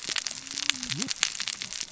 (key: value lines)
label: biophony, cascading saw
recorder: SoundTrap 600 or HydroMoth